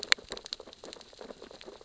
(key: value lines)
label: biophony, sea urchins (Echinidae)
recorder: SoundTrap 600 or HydroMoth